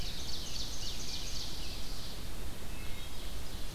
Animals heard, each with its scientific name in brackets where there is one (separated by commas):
Wood Thrush (Hylocichla mustelina), Ovenbird (Seiurus aurocapilla), Scarlet Tanager (Piranga olivacea)